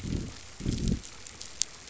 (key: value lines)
label: biophony, growl
recorder: SoundTrap 500